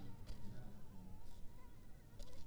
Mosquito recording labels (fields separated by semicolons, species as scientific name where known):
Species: Culex pipiens complex; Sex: female; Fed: unfed; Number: one; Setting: cup